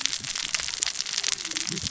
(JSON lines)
{"label": "biophony, cascading saw", "recorder": "SoundTrap 600 or HydroMoth"}